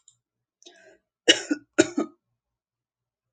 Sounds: Cough